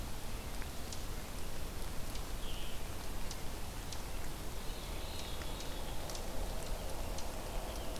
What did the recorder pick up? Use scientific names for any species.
Catharus fuscescens